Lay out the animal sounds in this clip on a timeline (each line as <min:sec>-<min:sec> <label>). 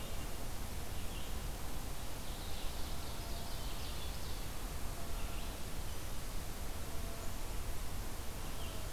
0:00.0-0:08.9 Red-eyed Vireo (Vireo olivaceus)
0:01.9-0:04.0 Ovenbird (Seiurus aurocapilla)